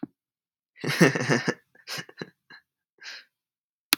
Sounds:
Laughter